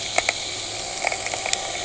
{"label": "anthrophony, boat engine", "recorder": "HydroMoth"}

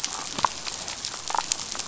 {"label": "biophony, damselfish", "recorder": "SoundTrap 500"}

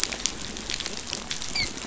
{"label": "biophony, dolphin", "recorder": "SoundTrap 500"}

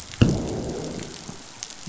{"label": "biophony, growl", "recorder": "SoundTrap 500"}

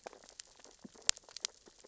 {"label": "biophony, sea urchins (Echinidae)", "recorder": "SoundTrap 600 or HydroMoth"}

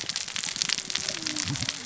{"label": "biophony, cascading saw", "recorder": "SoundTrap 600 or HydroMoth"}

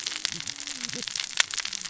{"label": "biophony, cascading saw", "recorder": "SoundTrap 600 or HydroMoth"}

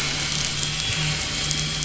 {"label": "anthrophony, boat engine", "recorder": "SoundTrap 500"}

